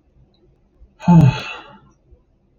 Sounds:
Sigh